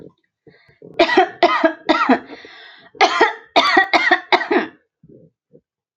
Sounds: Cough